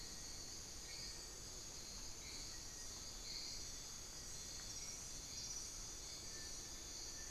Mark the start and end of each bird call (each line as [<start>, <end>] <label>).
[0.00, 7.30] Little Tinamou (Crypturellus soui)